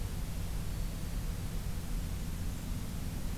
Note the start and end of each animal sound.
[0.46, 1.25] Black-throated Green Warbler (Setophaga virens)
[1.83, 2.98] Blackburnian Warbler (Setophaga fusca)

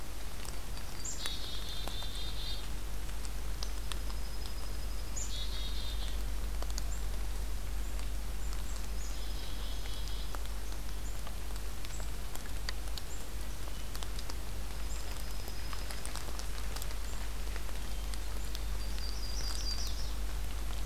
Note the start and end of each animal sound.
[0.22, 1.40] Yellow-rumped Warbler (Setophaga coronata)
[0.89, 2.69] Black-capped Chickadee (Poecile atricapillus)
[3.62, 5.33] Dark-eyed Junco (Junco hyemalis)
[5.11, 6.19] Black-capped Chickadee (Poecile atricapillus)
[8.68, 10.32] Black-capped Chickadee (Poecile atricapillus)
[8.79, 10.33] Dark-eyed Junco (Junco hyemalis)
[14.69, 16.17] Dark-eyed Junco (Junco hyemalis)
[18.77, 20.15] Yellow-rumped Warbler (Setophaga coronata)

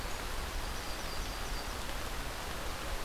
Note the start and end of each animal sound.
[0.22, 1.92] Yellow-rumped Warbler (Setophaga coronata)

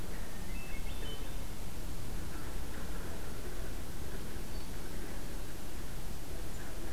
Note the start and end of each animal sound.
[0.10, 1.39] Hermit Thrush (Catharus guttatus)

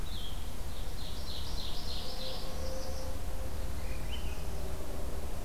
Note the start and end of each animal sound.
[0.00, 4.75] Red-eyed Vireo (Vireo olivaceus)
[0.60, 2.61] Ovenbird (Seiurus aurocapilla)
[2.14, 3.18] Northern Parula (Setophaga americana)

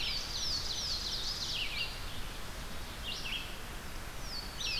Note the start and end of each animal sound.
[0.00, 1.58] Ovenbird (Seiurus aurocapilla)
[0.00, 2.19] Louisiana Waterthrush (Parkesia motacilla)
[0.00, 4.79] Red-eyed Vireo (Vireo olivaceus)
[3.98, 4.79] Louisiana Waterthrush (Parkesia motacilla)

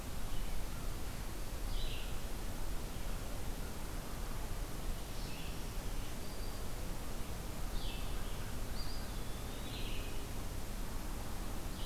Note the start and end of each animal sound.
[0.00, 11.85] Red-eyed Vireo (Vireo olivaceus)
[4.84, 6.70] Black-throated Green Warbler (Setophaga virens)
[8.51, 9.86] Eastern Wood-Pewee (Contopus virens)

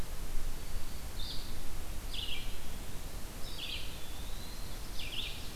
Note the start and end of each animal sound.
[0.00, 5.55] Red-eyed Vireo (Vireo olivaceus)
[0.40, 1.13] Black-throated Green Warbler (Setophaga virens)
[2.23, 4.84] Eastern Wood-Pewee (Contopus virens)
[4.42, 5.55] Ovenbird (Seiurus aurocapilla)

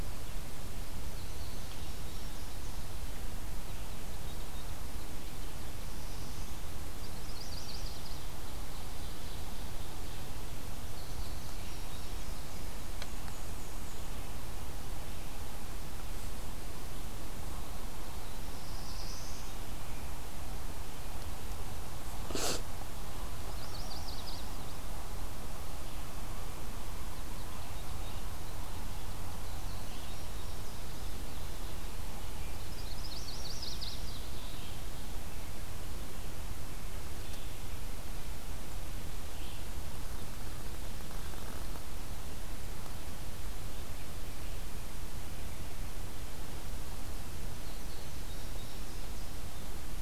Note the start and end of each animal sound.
[0.97, 2.86] Indigo Bunting (Passerina cyanea)
[5.72, 6.71] Black-throated Blue Warbler (Setophaga caerulescens)
[6.96, 8.30] Chestnut-sided Warbler (Setophaga pensylvanica)
[8.05, 10.06] Ovenbird (Seiurus aurocapilla)
[10.69, 12.76] Indigo Bunting (Passerina cyanea)
[12.73, 14.05] Black-and-white Warbler (Mniotilta varia)
[18.43, 19.67] Black-throated Blue Warbler (Setophaga caerulescens)
[23.18, 24.65] Yellow-rumped Warbler (Setophaga coronata)
[27.02, 28.59] Indigo Bunting (Passerina cyanea)
[32.59, 34.50] Chestnut-sided Warbler (Setophaga pensylvanica)
[37.10, 39.67] Red-eyed Vireo (Vireo olivaceus)
[47.55, 49.75] Indigo Bunting (Passerina cyanea)

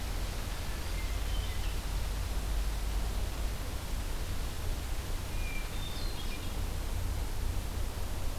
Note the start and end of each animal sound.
[0.51, 2.01] Hermit Thrush (Catharus guttatus)
[5.22, 6.67] Hermit Thrush (Catharus guttatus)

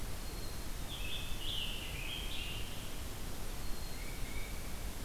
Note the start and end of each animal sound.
[0.00, 1.12] Black-capped Chickadee (Poecile atricapillus)
[0.76, 2.81] Scarlet Tanager (Piranga olivacea)
[3.47, 4.63] Black-capped Chickadee (Poecile atricapillus)
[3.81, 4.71] Tufted Titmouse (Baeolophus bicolor)

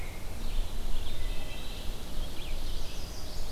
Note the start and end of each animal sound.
[0.00, 3.51] Red-eyed Vireo (Vireo olivaceus)
[1.33, 1.91] Wood Thrush (Hylocichla mustelina)
[2.54, 3.51] Chestnut-sided Warbler (Setophaga pensylvanica)

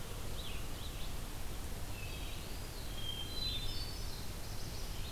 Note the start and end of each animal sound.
[0.00, 5.11] Red-eyed Vireo (Vireo olivaceus)
[1.86, 2.45] Hermit Thrush (Catharus guttatus)
[2.30, 2.99] Eastern Wood-Pewee (Contopus virens)
[2.80, 4.17] Hermit Thrush (Catharus guttatus)

